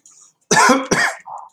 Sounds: Cough